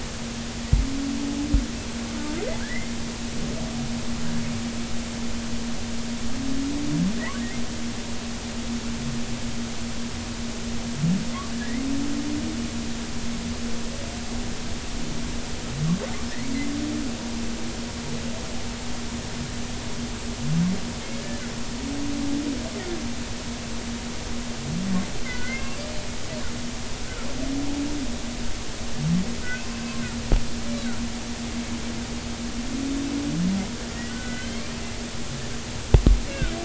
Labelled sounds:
2.6	2.9	humpback whale, 1.5 to 2.2 kHz
25.2	25.8	humpback whale, 1.4 to 2.8 kHz
34.1	34.6	humpback whale, 1.4 to 3.3 kHz

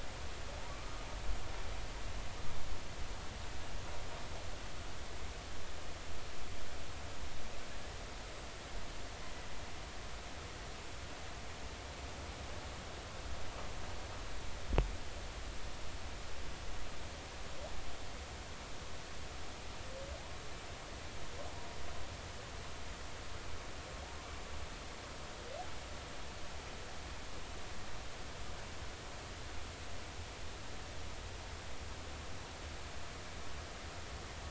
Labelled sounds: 0.8	1.0	humpback whale, 1.2 to 1.3 kHz

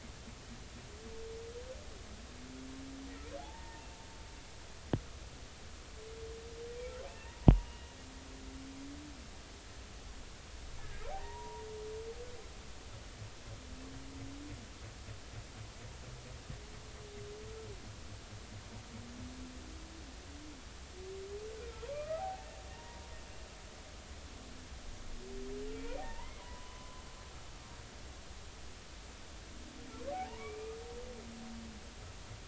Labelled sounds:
3.4	3.9	humpback whale, 0.80 to 1.9 kHz
7.1	7.4	humpback whale, 1.7 to 2.9 kHz
10.8	11.7	humpback whale, 0.80 to 1.8 kHz
21.9	22.5	humpback whale, 0.80 to 1.3 kHz
22.7	23.1	humpback whale, 0.86 to 1.1 kHz
25.7	27.0	humpback whale, 0.80 to 2.5 kHz
30.1	30.8	humpback whale, 0.80 to 2.5 kHz

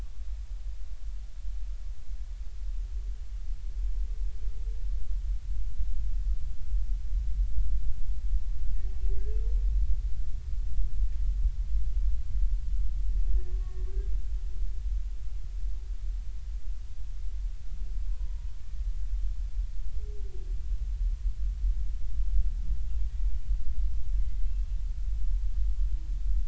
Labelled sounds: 13.5	13.8	humpback whale, 1.1 to 1.2 kHz
18.1	18.5	humpback whale, 0.90 to 1.1 kHz
24.2	24.5	humpback whale, 2.0 to 2.1 kHz

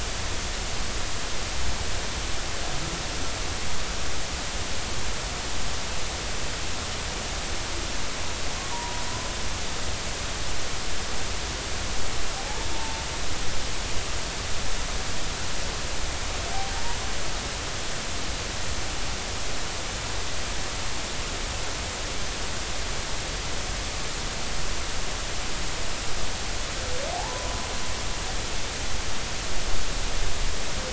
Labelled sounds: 9.7	10.0	humpback whale, 0.90 to 1.0 kHz
13.7	14.1	humpback whale, 0.86 to 0.93 kHz
27.1	27.7	humpback whale, 0.80 to 1.1 kHz

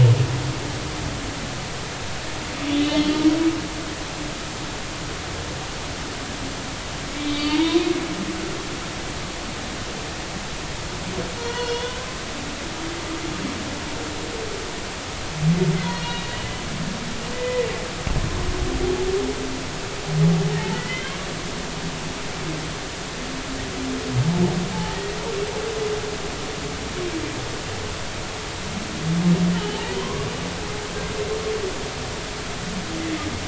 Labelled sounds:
2.7	3.3	humpback whale, 2.9 to 4.3 kHz
7.1	7.8	humpback whale, 0.86 to 4.6 kHz
11.4	12.0	humpback whale, 0.90 to 3.6 kHz
15.8	16.6	humpback whale, 2.9 to 3.4 kHz
17.3	17.7	humpback whale, 1.9 to 2.0 kHz
20.7	21.2	humpback whale, 1.9 to 3.3 kHz
24.7	25.0	humpback whale, 0.80 to 0.96 kHz
29.5	30.3	humpback whale, 0.80 to 3.1 kHz

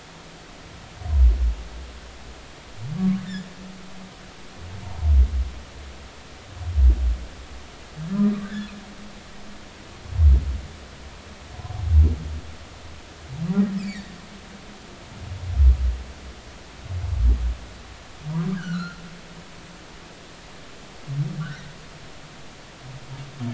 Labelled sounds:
0.3	0.7	humpback whale, 0.96 to 1.4 kHz
8.4	8.7	humpback whale, 1.5 to 1.9 kHz
13.8	14.1	humpback whale, 1.7 to 4.8 kHz
18.6	19.0	humpback whale, 1.2 to 4.4 kHz
21.4	21.7	humpback whale, 1.3 to 2.1 kHz

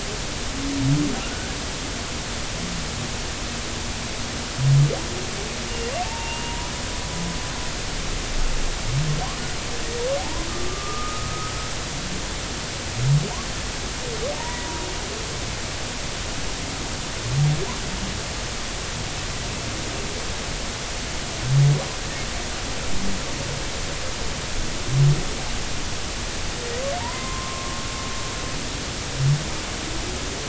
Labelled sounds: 1.2	1.6	humpback whale, 1.3 to 1.7 kHz
6.0	7.6	humpback whale, 0.86 to 2.9 kHz
10.2	11.6	humpback whale, 0.80 to 1.3 kHz
14.4	14.8	humpback whale, 0.86 to 2.0 kHz
27.0	27.8	humpback whale, 0.86 to 1.1 kHz

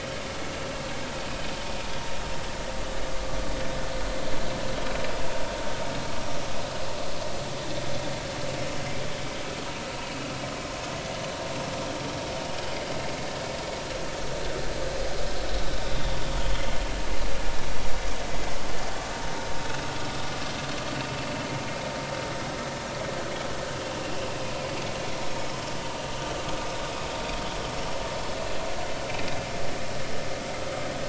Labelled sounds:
9.9	10.2	vessel noise, 2.8 to 2.9 kHz

